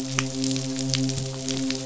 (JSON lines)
{"label": "biophony, midshipman", "recorder": "SoundTrap 500"}